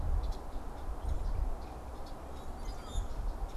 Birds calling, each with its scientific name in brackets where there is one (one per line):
unidentified bird
Common Grackle (Quiscalus quiscula)